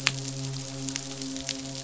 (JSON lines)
{"label": "biophony, midshipman", "recorder": "SoundTrap 500"}